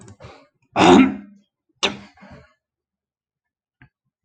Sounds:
Throat clearing